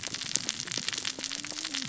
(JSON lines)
{"label": "biophony, cascading saw", "recorder": "SoundTrap 600 or HydroMoth"}